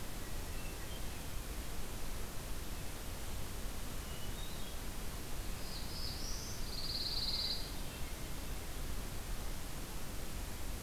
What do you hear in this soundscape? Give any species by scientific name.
Catharus guttatus, Setophaga caerulescens, Setophaga pinus